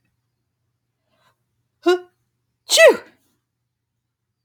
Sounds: Sneeze